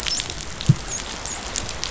{"label": "biophony, dolphin", "recorder": "SoundTrap 500"}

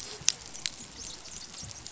{"label": "biophony, dolphin", "recorder": "SoundTrap 500"}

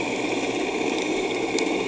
{"label": "anthrophony, boat engine", "recorder": "HydroMoth"}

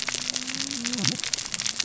{"label": "biophony, cascading saw", "recorder": "SoundTrap 600 or HydroMoth"}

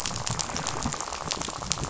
{"label": "biophony, rattle", "recorder": "SoundTrap 500"}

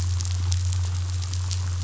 {"label": "anthrophony, boat engine", "recorder": "SoundTrap 500"}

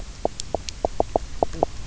{"label": "biophony, knock croak", "recorder": "SoundTrap 300"}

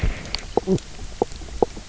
{"label": "biophony, knock croak", "recorder": "SoundTrap 300"}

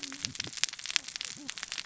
{"label": "biophony, cascading saw", "recorder": "SoundTrap 600 or HydroMoth"}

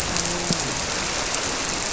{"label": "biophony, grouper", "recorder": "SoundTrap 300"}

